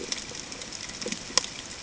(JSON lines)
{"label": "ambient", "recorder": "HydroMoth"}